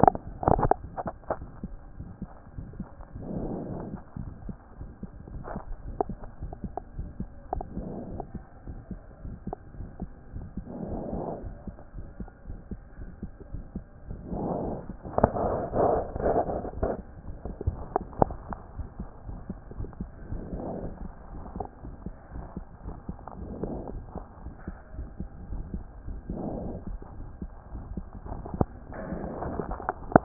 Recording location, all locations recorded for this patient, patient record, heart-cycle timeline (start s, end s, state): aortic valve (AV)
aortic valve (AV)+pulmonary valve (PV)+tricuspid valve (TV)+mitral valve (MV)
#Age: Child
#Sex: Male
#Height: 133.0 cm
#Weight: 24.8 kg
#Pregnancy status: False
#Murmur: Present
#Murmur locations: aortic valve (AV)+mitral valve (MV)+pulmonary valve (PV)+tricuspid valve (TV)
#Most audible location: pulmonary valve (PV)
#Systolic murmur timing: Early-systolic
#Systolic murmur shape: Decrescendo
#Systolic murmur grading: II/VI
#Systolic murmur pitch: Medium
#Systolic murmur quality: Harsh
#Diastolic murmur timing: nan
#Diastolic murmur shape: nan
#Diastolic murmur grading: nan
#Diastolic murmur pitch: nan
#Diastolic murmur quality: nan
#Outcome: Abnormal
#Campaign: 2014 screening campaign
0.00	18.10	unannotated
18.10	18.24	diastole
18.24	18.34	S1
18.34	18.48	systole
18.48	18.58	S2
18.58	18.76	diastole
18.76	18.86	S1
18.86	18.98	systole
18.98	19.06	S2
19.06	19.28	diastole
19.28	19.37	S1
19.37	19.48	systole
19.48	19.56	S2
19.56	19.78	diastole
19.78	19.88	S1
19.88	19.98	systole
19.98	20.10	S2
20.10	20.30	diastole
20.30	20.42	S1
20.42	20.54	systole
20.54	20.64	S2
20.64	20.82	diastole
20.82	20.92	S1
20.92	21.00	systole
21.00	21.10	S2
21.10	21.32	diastole
21.32	21.44	S1
21.44	21.54	systole
21.54	21.66	S2
21.66	21.86	diastole
21.86	21.94	S1
21.94	22.02	systole
22.02	22.14	S2
22.14	22.34	diastole
22.34	22.48	S1
22.48	22.54	systole
22.54	22.66	S2
22.66	22.86	diastole
22.86	22.98	S1
22.98	23.04	systole
23.04	23.16	S2
23.16	23.42	diastole
23.42	23.58	S1
23.58	23.62	systole
23.62	23.72	S2
23.72	23.90	diastole
23.90	24.06	S1
24.06	24.14	systole
24.14	24.26	S2
24.26	24.44	diastole
24.44	24.54	S1
24.54	24.66	systole
24.66	24.78	S2
24.78	24.98	diastole
24.98	25.12	S1
25.12	25.18	systole
25.18	25.30	S2
25.30	25.50	diastole
25.50	25.66	S1
25.66	25.72	systole
25.72	25.86	S2
25.86	26.06	diastole
26.06	26.22	S1
26.22	26.28	systole
26.28	26.40	S2
26.40	26.62	diastole
26.62	26.80	S1
26.80	26.88	systole
26.88	27.00	S2
27.00	27.18	diastole
27.18	27.28	S1
27.28	27.40	systole
27.40	27.50	S2
27.50	27.74	diastole
27.74	27.84	S1
27.84	27.90	systole
27.90	28.06	S2
28.06	28.30	diastole
28.30	28.46	S1
28.46	28.54	systole
28.54	28.70	S2
28.70	28.90	diastole
28.90	29.02	S1
29.02	29.06	systole
29.06	29.22	S2
29.22	29.42	diastole
29.42	29.60	S1
29.60	29.68	systole
29.68	29.78	S2
29.78	30.00	diastole
30.00	30.01	S1
30.01	30.24	unannotated